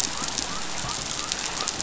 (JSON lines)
{"label": "biophony", "recorder": "SoundTrap 500"}